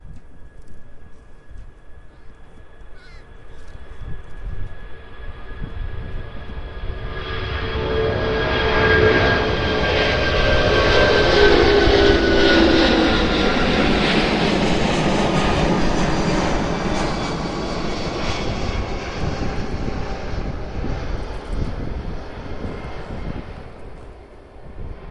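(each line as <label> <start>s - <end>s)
An airplane takes off, flies overhead, and then moves away. 0.0s - 25.1s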